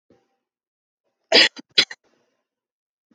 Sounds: Cough